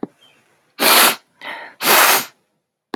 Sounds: Sniff